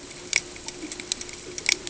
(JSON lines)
{"label": "ambient", "recorder": "HydroMoth"}